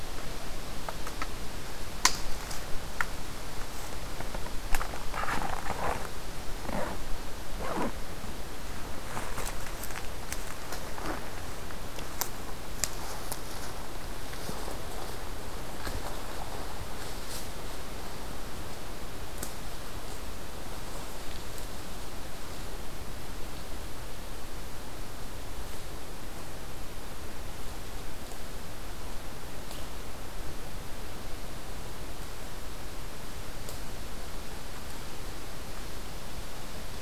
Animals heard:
forest ambience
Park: Katahdin Woods and Waters National Monument